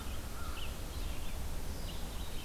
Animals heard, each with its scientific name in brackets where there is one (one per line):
American Crow (Corvus brachyrhynchos)
Red-eyed Vireo (Vireo olivaceus)